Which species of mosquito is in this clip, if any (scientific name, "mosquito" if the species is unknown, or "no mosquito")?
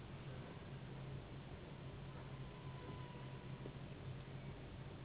Anopheles gambiae s.s.